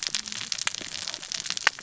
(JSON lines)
{"label": "biophony, cascading saw", "recorder": "SoundTrap 600 or HydroMoth"}